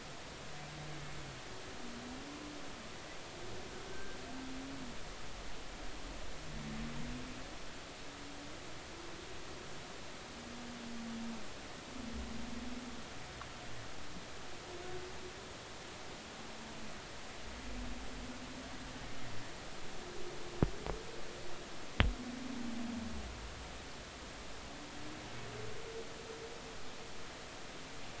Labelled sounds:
3.9	4.2	humpback whale, 1.5 to 1.7 kHz

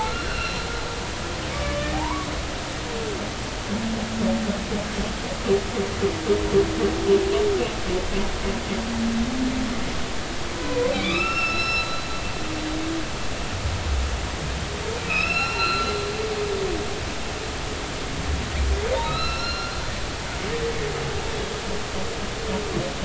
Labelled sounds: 0.0	0.7	humpback whale, 1.2 to 4.2 kHz
1.5	2.3	humpback whale, 0.80 to 1.9 kHz
10.5	12.0	humpback whale, 0.93 to 5.5 kHz
15.1	15.9	humpback whale, 1.2 to 5.5 kHz
18.9	19.8	humpback whale, 1.2 to 5.6 kHz

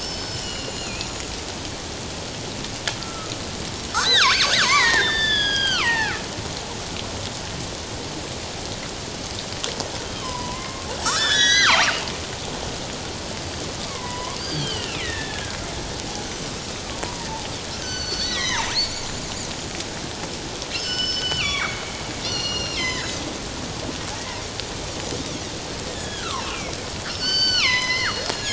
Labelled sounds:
0.0	1.4	killer whale, northern resident, G clan, 2.3 to 7.3 kHz
3.0	3.3	killer whale, northern resident, G clan, 1.2 to 1.4 kHz
3.9	6.3	killer whale, northern resident, G clan, 0.78 to 6.7 kHz
10.1	12.0	killer whale, northern resident, G clan, 0.78 to 8.0 kHz
13.9	15.6	killer whale, northern resident, G clan, 0.94 to 4.9 kHz
17.8	19.1	killer whale, northern resident, G clan, 0.84 to 7.2 kHz
20.7	21.8	killer whale, northern resident, G clan, 1.0 to 7.6 kHz
22.2	23.2	killer whale, northern resident, G clan, 1.5 to 6.0 kHz
25.9	26.8	killer whale, northern resident, G clan, 0.88 to 3.7 kHz
27.1	28.2	killer whale, northern resident, G clan, 0.94 to 6.3 kHz

